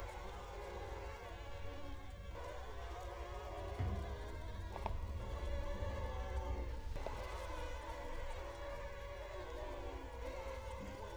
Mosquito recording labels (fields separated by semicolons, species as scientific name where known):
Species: Culex quinquefasciatus; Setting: cup